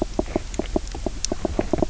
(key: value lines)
label: biophony, knock croak
recorder: SoundTrap 300